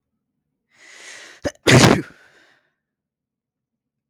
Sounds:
Sneeze